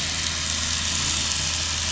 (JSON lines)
{"label": "anthrophony, boat engine", "recorder": "SoundTrap 500"}